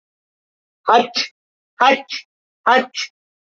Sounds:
Sneeze